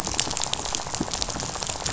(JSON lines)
{"label": "biophony, rattle", "recorder": "SoundTrap 500"}